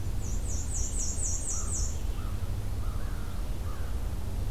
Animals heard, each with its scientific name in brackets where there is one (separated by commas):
Black-and-white Warbler (Mniotilta varia), American Crow (Corvus brachyrhynchos)